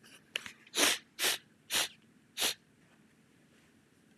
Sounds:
Sniff